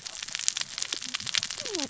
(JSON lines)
{"label": "biophony, cascading saw", "recorder": "SoundTrap 600 or HydroMoth"}